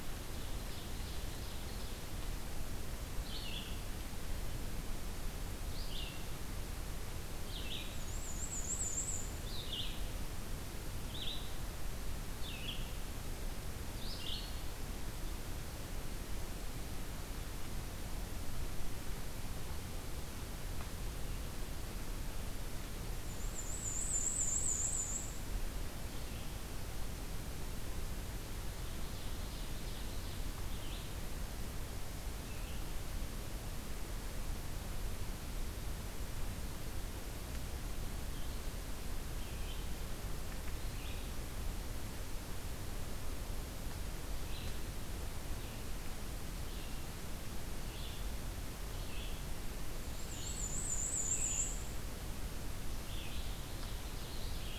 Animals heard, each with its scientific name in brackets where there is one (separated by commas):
Black-and-white Warbler (Mniotilta varia), Red-eyed Vireo (Vireo olivaceus), Ovenbird (Seiurus aurocapilla)